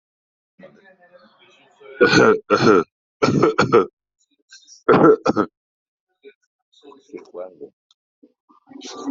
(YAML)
expert_labels:
- quality: good
  cough_type: dry
  dyspnea: false
  wheezing: false
  stridor: false
  choking: false
  congestion: false
  nothing: true
  diagnosis: COVID-19
  severity: mild
age: 36
gender: male
respiratory_condition: true
fever_muscle_pain: false
status: healthy